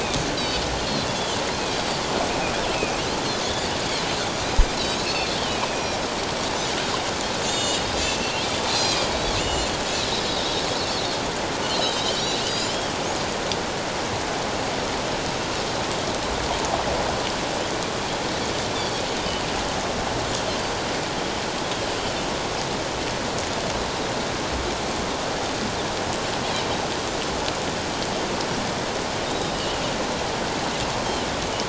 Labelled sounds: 0.4	0.6	Pacific white-sided dolphin, 3.6 to 4.1 kHz
1.2	2.0	Pacific white-sided dolphin, 2.8 to 4.8 kHz
2.7	3.0	Pacific white-sided dolphin, 2.3 to 2.8 kHz
3.4	3.7	Pacific white-sided dolphin, 3.3 to 3.7 kHz
4.8	6.0	Pacific white-sided dolphin, 2.4 to 5.9 kHz
7.4	7.8	Pacific white-sided dolphin, 2.8 to 7.4 kHz
8.2	9.7	Pacific white-sided dolphin, 2.5 to 7.4 kHz
10.2	10.5	Pacific white-sided dolphin, 3.6 to 4.0 kHz
11.6	12.0	Pacific white-sided dolphin, 2.7 to 3.2 kHz
12.4	12.8	Pacific white-sided dolphin, 4.7 to 5.3 kHz
29.3	29.8	Pacific white-sided dolphin, 2.8 to 3.9 kHz

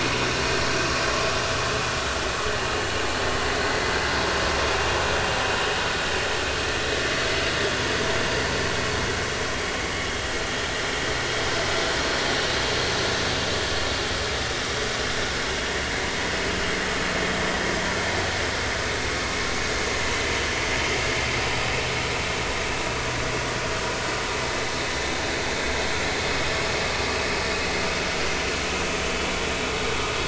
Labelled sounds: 29.0	29.3	vessel noise, 2.9 to 3.1 kHz

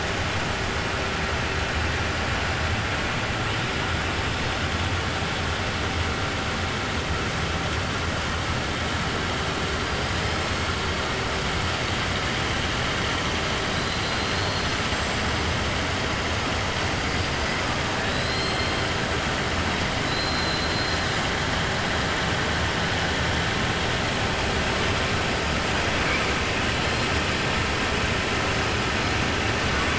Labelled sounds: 13.7	14.8	killer whale, 3.5 to 5.0 kHz
18.1	18.8	killer whale, 3.2 to 4.3 kHz
20.0	21.1	killer whale, 3.9 to 4.8 kHz

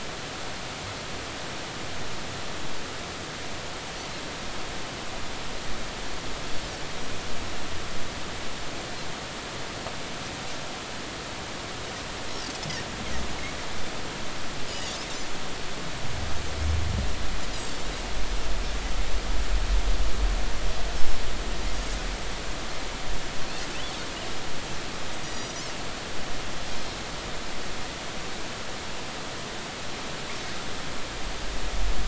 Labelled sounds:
14.7	15.0	Pacific white-sided dolphin, 6.5 to 6.9 kHz
20.9	21.2	Pacific white-sided dolphin, 5.2 to 5.5 kHz
25.2	25.6	Pacific white-sided dolphin, 5.7 to 6.0 kHz

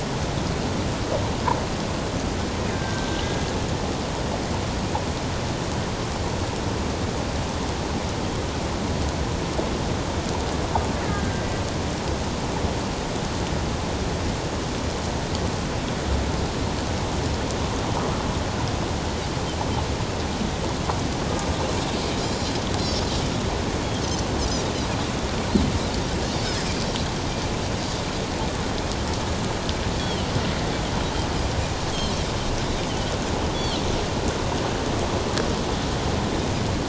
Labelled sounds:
2.7	3.4	killer whale, Bigg's (transient), 1.5 to 1.7 kHz
11.0	11.4	killer whale, Bigg's (transient), 1.5 to 1.8 kHz
26.4	26.7	Pacific white-sided dolphin, 4.9 to 5.3 kHz
30.0	30.3	Pacific white-sided dolphin, 2.9 to 3.5 kHz
33.5	33.8	Pacific white-sided dolphin, 2.7 to 4.7 kHz

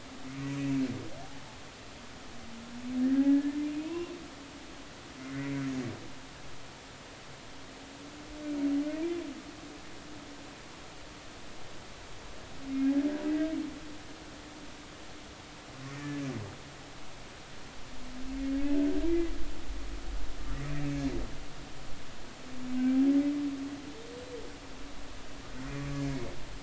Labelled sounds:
3.2	4.2	humpback whale, 0.93 to 2.8 kHz
5.3	5.6	humpback whale, 1.9 to 2.1 kHz
20.8	21.0	humpback whale, 2.2 to 2.4 kHz
22.8	23.0	humpback whale, 1.5 to 1.6 kHz

